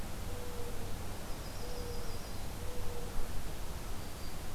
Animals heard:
Black-throated Green Warbler (Setophaga virens), Yellow-rumped Warbler (Setophaga coronata), Mourning Dove (Zenaida macroura)

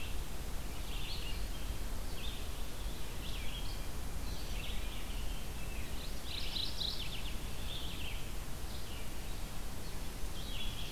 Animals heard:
Mourning Warbler (Geothlypis philadelphia), Rose-breasted Grosbeak (Pheucticus ludovicianus), Red-eyed Vireo (Vireo olivaceus)

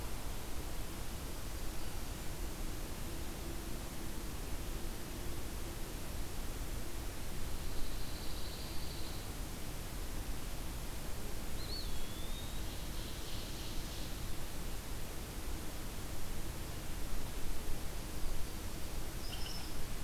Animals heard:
unknown mammal, Ovenbird (Seiurus aurocapilla), Eastern Wood-Pewee (Contopus virens), Pine Warbler (Setophaga pinus)

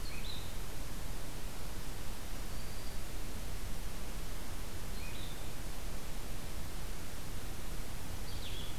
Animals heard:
Blue-headed Vireo (Vireo solitarius)

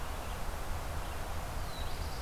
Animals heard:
Red-eyed Vireo (Vireo olivaceus), Black-throated Blue Warbler (Setophaga caerulescens)

